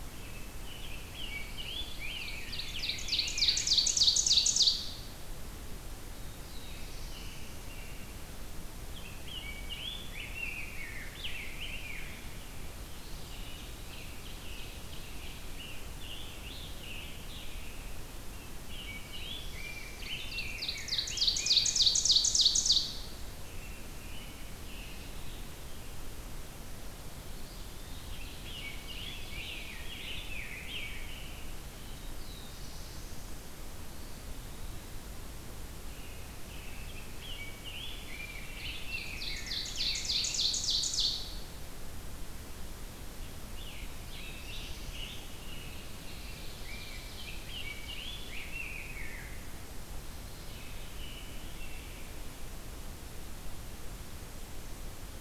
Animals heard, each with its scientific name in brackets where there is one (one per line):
Eastern Wood-Pewee (Contopus virens)
Scarlet Tanager (Piranga olivacea)
American Robin (Turdus migratorius)
Black-throated Blue Warbler (Setophaga caerulescens)
Ovenbird (Seiurus aurocapilla)
Rose-breasted Grosbeak (Pheucticus ludovicianus)